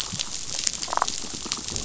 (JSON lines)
{"label": "biophony, damselfish", "recorder": "SoundTrap 500"}